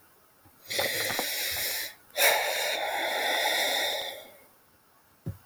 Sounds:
Sigh